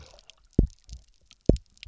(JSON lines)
{"label": "biophony, double pulse", "recorder": "SoundTrap 300"}